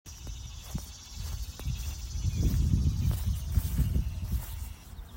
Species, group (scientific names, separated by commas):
Neotibicen tibicen, Cicadidae